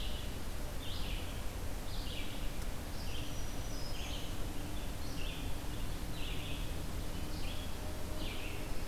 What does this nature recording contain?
Red-eyed Vireo, Black-throated Green Warbler